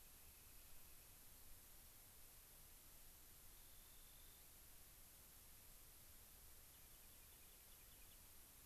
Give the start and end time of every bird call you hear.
0.0s-1.3s: Rock Wren (Salpinctes obsoletus)
3.5s-4.5s: Rock Wren (Salpinctes obsoletus)
6.7s-8.2s: Rock Wren (Salpinctes obsoletus)

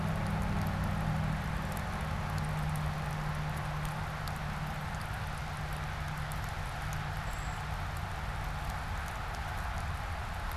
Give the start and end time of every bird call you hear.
7.1s-7.7s: Brown Creeper (Certhia americana)

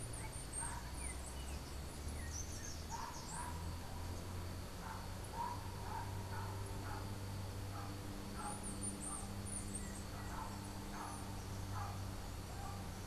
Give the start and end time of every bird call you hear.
0.0s-2.8s: Chestnut-capped Brushfinch (Arremon brunneinucha)
0.0s-3.1s: Yellow-backed Oriole (Icterus chrysater)
2.0s-3.5s: Slate-throated Redstart (Myioborus miniatus)
8.2s-13.1s: Chestnut-capped Brushfinch (Arremon brunneinucha)

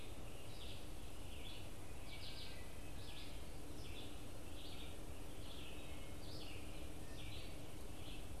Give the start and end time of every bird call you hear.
0.0s-8.4s: Red-eyed Vireo (Vireo olivaceus)
0.0s-8.4s: Wood Thrush (Hylocichla mustelina)

